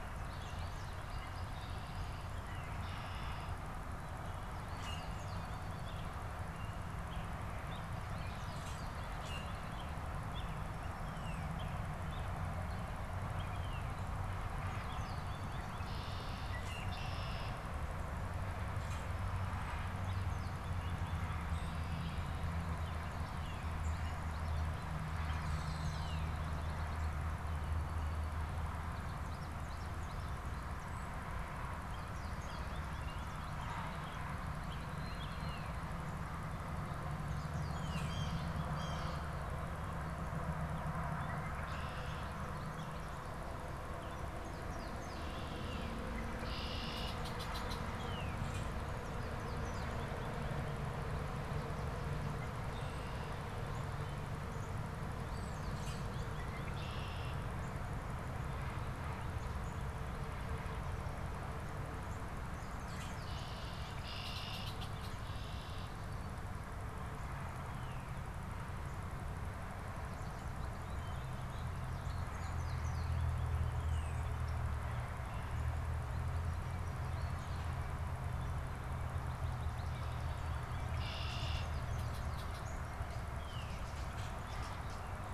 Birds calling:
Blue Jay (Cyanocitta cristata)
American Robin (Turdus migratorius)
American Goldfinch (Spinus tristis)
Red-winged Blackbird (Agelaius phoeniceus)
Common Grackle (Quiscalus quiscula)
unidentified bird
Northern Cardinal (Cardinalis cardinalis)

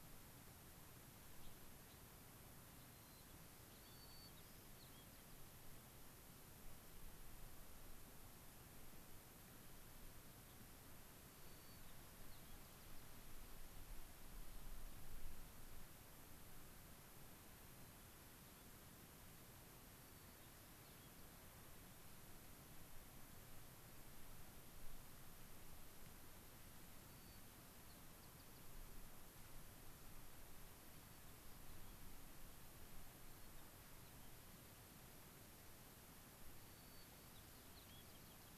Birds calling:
Gray-crowned Rosy-Finch (Leucosticte tephrocotis)
White-crowned Sparrow (Zonotrichia leucophrys)
American Pipit (Anthus rubescens)

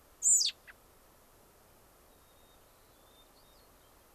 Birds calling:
American Robin (Turdus migratorius)
White-crowned Sparrow (Zonotrichia leucophrys)
Hermit Thrush (Catharus guttatus)

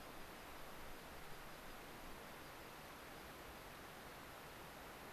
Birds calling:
American Pipit (Anthus rubescens)

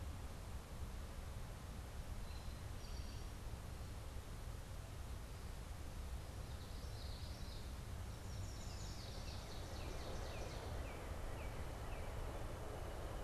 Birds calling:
Common Yellowthroat (Geothlypis trichas)
Eastern Towhee (Pipilo erythrophthalmus)
Yellow Warbler (Setophaga petechia)
Ovenbird (Seiurus aurocapilla)
Northern Cardinal (Cardinalis cardinalis)

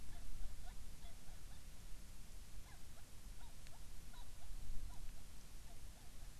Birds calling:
Hawaiian Petrel (Pterodroma sandwichensis)

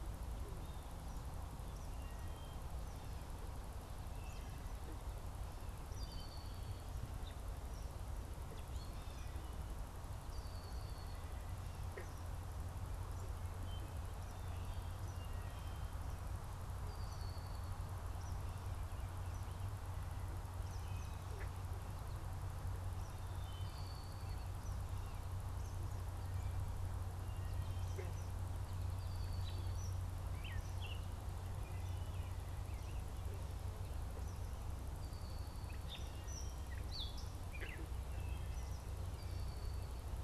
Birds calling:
Red-winged Blackbird (Agelaius phoeniceus)
Blue Jay (Cyanocitta cristata)
Eastern Kingbird (Tyrannus tyrannus)
Gray Catbird (Dumetella carolinensis)
American Robin (Turdus migratorius)
Wood Thrush (Hylocichla mustelina)

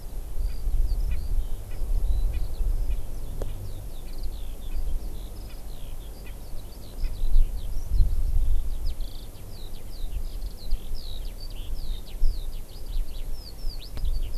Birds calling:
Eurasian Skylark (Alauda arvensis)
Erckel's Francolin (Pternistis erckelii)

